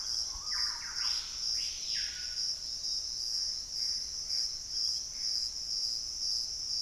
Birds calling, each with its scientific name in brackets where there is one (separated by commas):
Gray Antbird (Cercomacra cinerascens), Thrush-like Wren (Campylorhynchus turdinus), Piratic Flycatcher (Legatus leucophaius), Screaming Piha (Lipaugus vociferans)